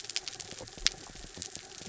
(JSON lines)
{"label": "anthrophony, mechanical", "recorder": "SoundTrap 300"}